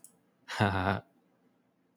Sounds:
Laughter